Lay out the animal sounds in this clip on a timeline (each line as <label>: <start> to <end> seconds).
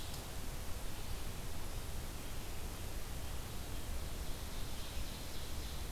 Ovenbird (Seiurus aurocapilla): 3.9 to 5.9 seconds